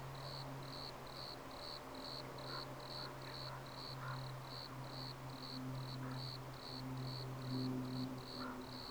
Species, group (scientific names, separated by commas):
Eumodicogryllus bordigalensis, Orthoptera